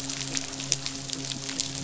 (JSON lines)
{"label": "biophony, midshipman", "recorder": "SoundTrap 500"}